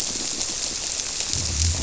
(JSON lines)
{"label": "biophony", "recorder": "SoundTrap 300"}